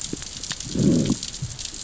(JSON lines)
{"label": "biophony, growl", "recorder": "SoundTrap 600 or HydroMoth"}